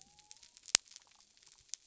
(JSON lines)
{"label": "biophony", "recorder": "SoundTrap 300"}